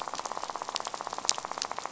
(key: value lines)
label: biophony, rattle
recorder: SoundTrap 500